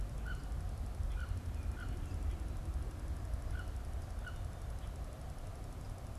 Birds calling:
Wood Duck (Aix sponsa)

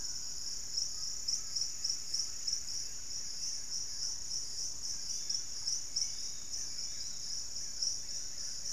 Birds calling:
Lemon-throated Barbet (Eubucco richardsoni)
Yellow-margined Flycatcher (Tolmomyias assimilis)
unidentified bird
Undulated Tinamou (Crypturellus undulatus)
Black-fronted Nunbird (Monasa nigrifrons)

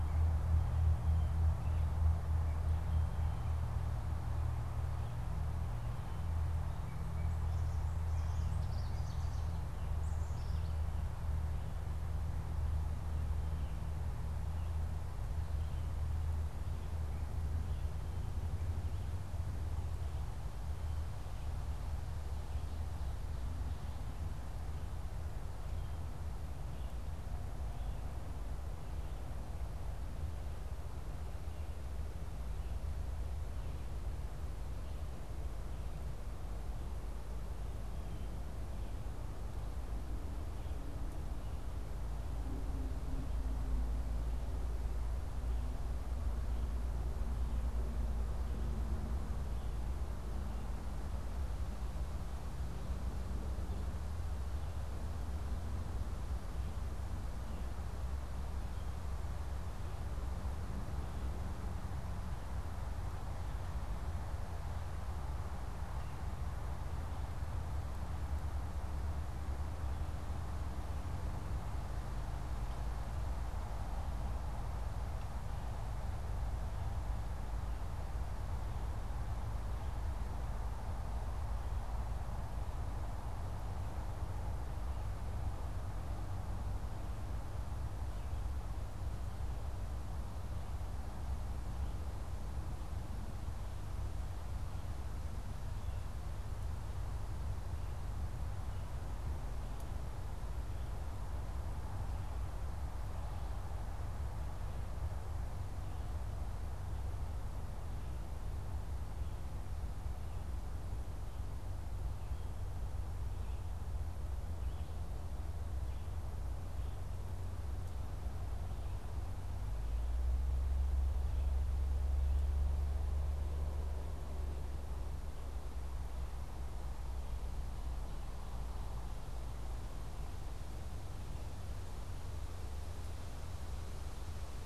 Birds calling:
Ovenbird (Seiurus aurocapilla)

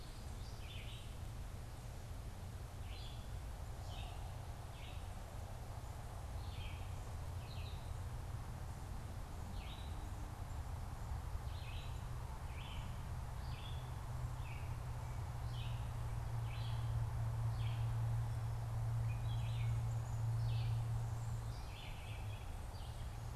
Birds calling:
Black-capped Chickadee (Poecile atricapillus)
Gray Catbird (Dumetella carolinensis)
Red-eyed Vireo (Vireo olivaceus)

